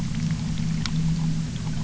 {"label": "anthrophony, boat engine", "recorder": "SoundTrap 300"}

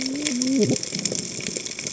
{"label": "biophony, cascading saw", "recorder": "HydroMoth"}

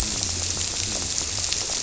{"label": "biophony", "recorder": "SoundTrap 300"}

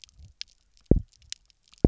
{"label": "biophony, double pulse", "recorder": "SoundTrap 300"}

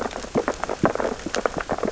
{"label": "biophony, sea urchins (Echinidae)", "recorder": "SoundTrap 600 or HydroMoth"}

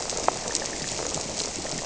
{"label": "biophony", "recorder": "SoundTrap 300"}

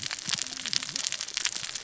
{"label": "biophony, cascading saw", "recorder": "SoundTrap 600 or HydroMoth"}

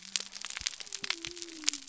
{"label": "biophony", "recorder": "SoundTrap 300"}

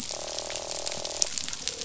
{"label": "biophony, croak", "recorder": "SoundTrap 500"}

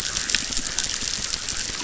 {"label": "biophony, chorus", "recorder": "SoundTrap 600"}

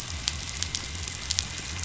{"label": "biophony", "recorder": "SoundTrap 500"}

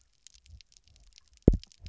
{"label": "biophony, double pulse", "recorder": "SoundTrap 300"}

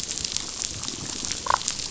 {"label": "biophony, damselfish", "recorder": "SoundTrap 500"}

